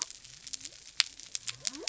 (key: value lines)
label: biophony
recorder: SoundTrap 300